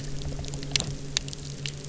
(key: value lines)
label: anthrophony, boat engine
recorder: SoundTrap 300